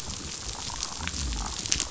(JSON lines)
{"label": "biophony, chatter", "recorder": "SoundTrap 500"}